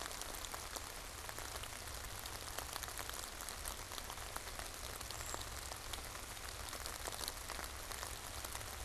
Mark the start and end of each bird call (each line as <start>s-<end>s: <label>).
4.9s-8.8s: Brown Creeper (Certhia americana)